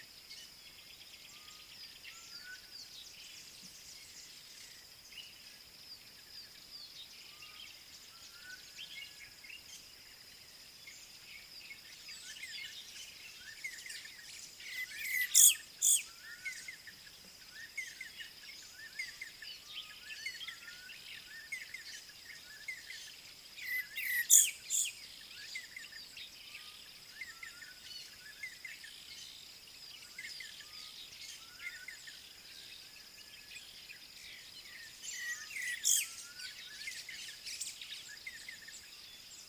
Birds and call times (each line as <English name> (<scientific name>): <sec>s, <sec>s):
D'Arnaud's Barbet (Trachyphonus darnaudii): 13.7s, 16.5s, 20.3s, 27.3s, 38.3s
African Bare-eyed Thrush (Turdus tephronotus): 15.4s, 24.1s, 35.9s